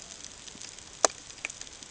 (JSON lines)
{"label": "ambient", "recorder": "HydroMoth"}